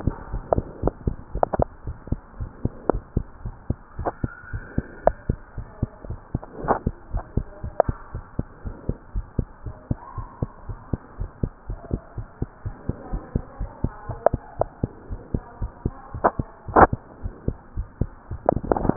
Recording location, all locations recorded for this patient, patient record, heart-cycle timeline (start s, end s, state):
tricuspid valve (TV)
aortic valve (AV)+pulmonary valve (PV)+tricuspid valve (TV)+mitral valve (MV)
#Age: Child
#Sex: Male
#Height: 90.0 cm
#Weight: 13.9 kg
#Pregnancy status: False
#Murmur: Absent
#Murmur locations: nan
#Most audible location: nan
#Systolic murmur timing: nan
#Systolic murmur shape: nan
#Systolic murmur grading: nan
#Systolic murmur pitch: nan
#Systolic murmur quality: nan
#Diastolic murmur timing: nan
#Diastolic murmur shape: nan
#Diastolic murmur grading: nan
#Diastolic murmur pitch: nan
#Diastolic murmur quality: nan
#Outcome: Normal
#Campaign: 2015 screening campaign
0.00	1.76	unannotated
1.76	1.86	diastole
1.86	1.96	S1
1.96	2.08	systole
2.08	2.22	S2
2.22	2.38	diastole
2.38	2.50	S1
2.50	2.62	systole
2.62	2.72	S2
2.72	2.88	diastole
2.88	3.02	S1
3.02	3.12	systole
3.12	3.28	S2
3.28	3.44	diastole
3.44	3.56	S1
3.56	3.66	systole
3.66	3.80	S2
3.80	3.98	diastole
3.98	4.12	S1
4.12	4.20	systole
4.20	4.34	S2
4.34	4.52	diastole
4.52	4.66	S1
4.66	4.76	systole
4.76	4.88	S2
4.88	5.04	diastole
5.04	5.16	S1
5.16	5.28	systole
5.28	5.40	S2
5.40	5.56	diastole
5.56	5.68	S1
5.68	5.78	systole
5.78	5.90	S2
5.90	6.08	diastole
6.08	6.20	S1
6.20	6.30	systole
6.30	6.42	S2
6.42	6.60	diastole
6.60	6.76	S1
6.76	6.84	systole
6.84	6.98	S2
6.98	7.12	diastole
7.12	7.24	S1
7.24	7.36	systole
7.36	7.48	S2
7.48	7.64	diastole
7.64	7.74	S1
7.74	7.84	systole
7.84	7.96	S2
7.96	8.14	diastole
8.14	8.24	S1
8.24	8.34	systole
8.34	8.46	S2
8.46	8.64	diastole
8.64	8.74	S1
8.74	8.86	systole
8.86	8.98	S2
8.98	9.14	diastole
9.14	9.26	S1
9.26	9.36	systole
9.36	9.50	S2
9.50	9.66	diastole
9.66	9.76	S1
9.76	9.86	systole
9.86	9.98	S2
9.98	10.16	diastole
10.16	10.28	S1
10.28	10.38	systole
10.38	10.50	S2
10.50	10.66	diastole
10.66	10.78	S1
10.78	10.90	systole
10.90	11.00	S2
11.00	11.18	diastole
11.18	11.30	S1
11.30	11.42	systole
11.42	11.52	S2
11.52	11.68	diastole
11.68	11.80	S1
11.80	11.90	systole
11.90	12.02	S2
12.02	12.16	diastole
12.16	12.26	S1
12.26	12.38	systole
12.38	12.50	S2
12.50	12.64	diastole
12.64	12.76	S1
12.76	12.88	systole
12.88	12.98	S2
12.98	13.12	diastole
13.12	13.22	S1
13.22	13.32	systole
13.32	13.46	S2
13.46	13.58	diastole
13.58	13.70	S1
13.70	13.82	systole
13.82	13.96	S2
13.96	14.08	diastole
14.08	14.20	S1
14.20	14.32	systole
14.32	14.42	S2
14.42	14.58	diastole
14.58	14.70	S1
14.70	14.82	systole
14.82	14.92	S2
14.92	15.10	diastole
15.10	15.20	S1
15.20	15.32	systole
15.32	15.44	S2
15.44	15.62	diastole
15.62	15.72	S1
15.72	15.84	systole
15.84	15.98	S2
15.98	16.14	diastole
16.14	16.24	S1
16.24	18.96	unannotated